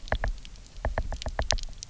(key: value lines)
label: biophony, knock
recorder: SoundTrap 300